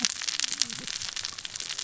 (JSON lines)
{"label": "biophony, cascading saw", "recorder": "SoundTrap 600 or HydroMoth"}